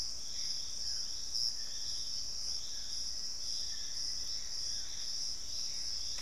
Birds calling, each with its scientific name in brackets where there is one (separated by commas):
Piratic Flycatcher (Legatus leucophaius), Black-spotted Bare-eye (Phlegopsis nigromaculata), Hauxwell's Thrush (Turdus hauxwelli), Dusky-throated Antshrike (Thamnomanes ardesiacus), Black-faced Antthrush (Formicarius analis), Gray Antbird (Cercomacra cinerascens)